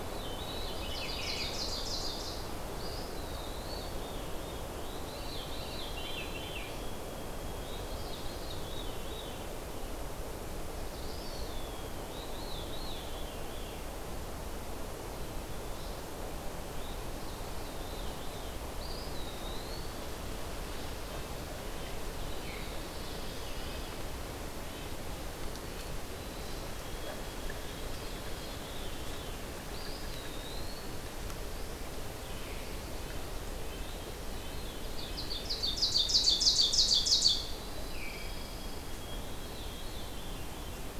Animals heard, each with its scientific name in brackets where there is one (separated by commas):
Black-throated Blue Warbler (Setophaga caerulescens), Red-eyed Vireo (Vireo olivaceus), Veery (Catharus fuscescens), White-throated Sparrow (Zonotrichia albicollis), Eastern Wood-Pewee (Contopus virens), Ovenbird (Seiurus aurocapilla), Pine Warbler (Setophaga pinus), Red-breasted Nuthatch (Sitta canadensis)